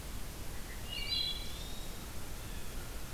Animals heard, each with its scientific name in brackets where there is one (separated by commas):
Eastern Wood-Pewee (Contopus virens), Blue Jay (Cyanocitta cristata), Wood Thrush (Hylocichla mustelina)